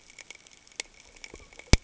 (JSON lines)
{"label": "ambient", "recorder": "HydroMoth"}